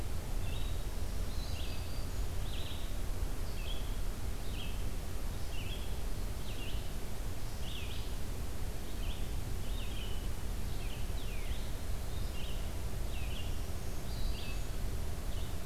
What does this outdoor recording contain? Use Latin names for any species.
Vireo olivaceus, Setophaga virens, Cardinalis cardinalis